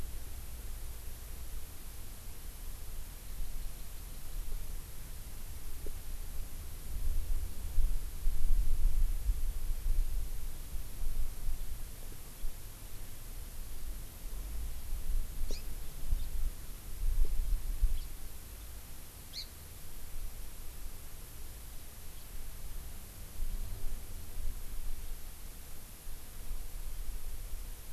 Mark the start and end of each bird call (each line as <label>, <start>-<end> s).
Hawaii Amakihi (Chlorodrepanis virens), 15.4-15.6 s
Hawaii Amakihi (Chlorodrepanis virens), 19.3-19.4 s